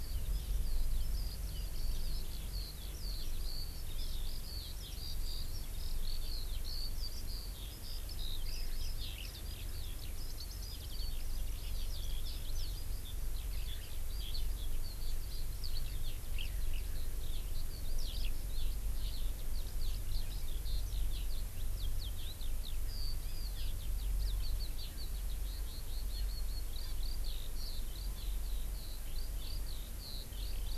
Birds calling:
Eurasian Skylark (Alauda arvensis)

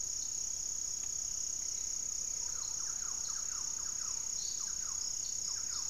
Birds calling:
Gray-fronted Dove (Leptotila rufaxilla), Thrush-like Wren (Campylorhynchus turdinus)

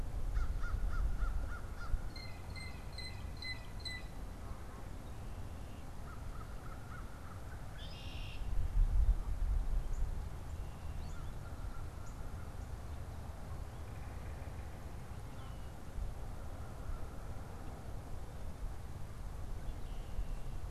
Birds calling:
Red-winged Blackbird (Agelaius phoeniceus), unidentified bird, Yellow-bellied Sapsucker (Sphyrapicus varius), Blue Jay (Cyanocitta cristata), American Crow (Corvus brachyrhynchos)

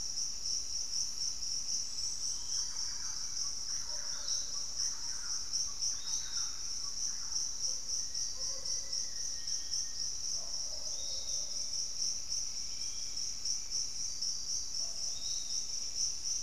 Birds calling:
Black-faced Antthrush (Formicarius analis), Piratic Flycatcher (Legatus leucophaius), Thrush-like Wren (Campylorhynchus turdinus), unidentified bird, Pygmy Antwren (Myrmotherula brachyura)

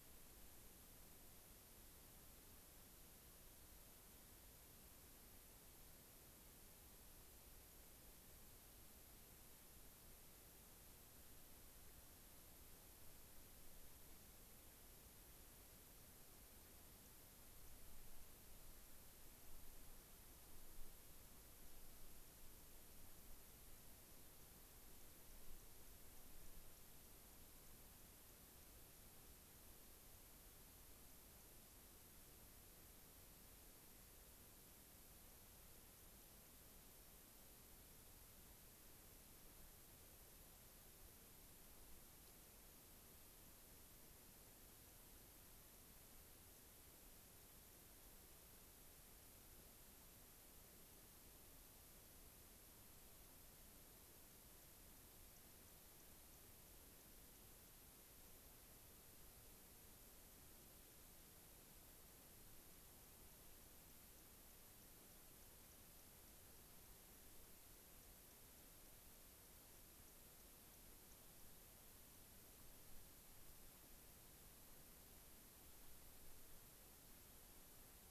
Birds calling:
unidentified bird

